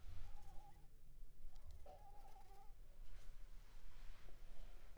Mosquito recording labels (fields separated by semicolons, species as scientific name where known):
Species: Anopheles arabiensis; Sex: female; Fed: unfed; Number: one; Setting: cup